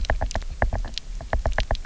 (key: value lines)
label: biophony, knock
recorder: SoundTrap 300